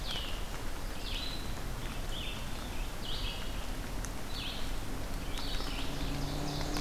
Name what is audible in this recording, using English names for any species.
Red-eyed Vireo, unknown mammal